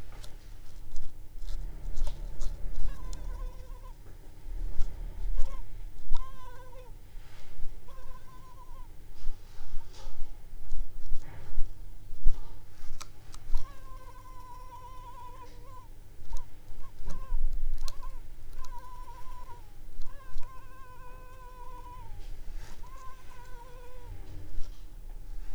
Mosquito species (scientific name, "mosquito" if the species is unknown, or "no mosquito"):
Culex pipiens complex